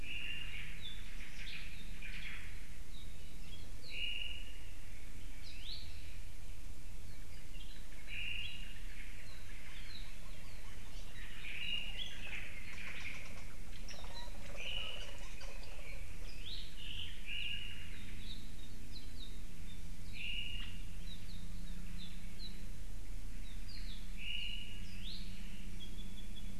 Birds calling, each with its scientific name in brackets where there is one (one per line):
Omao (Myadestes obscurus)
Apapane (Himatione sanguinea)
Iiwi (Drepanis coccinea)
Hawaii Elepaio (Chasiempis sandwichensis)